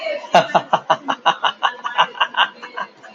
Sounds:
Laughter